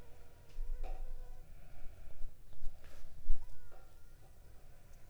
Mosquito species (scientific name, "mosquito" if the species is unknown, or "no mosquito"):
Anopheles funestus s.l.